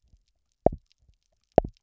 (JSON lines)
{"label": "biophony, double pulse", "recorder": "SoundTrap 300"}